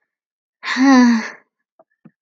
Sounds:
Sigh